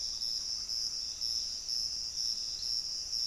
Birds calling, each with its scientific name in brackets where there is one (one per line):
Piratic Flycatcher (Legatus leucophaius)